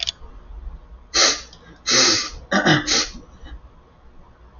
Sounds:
Sniff